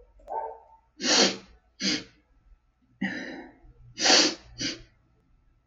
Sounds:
Sniff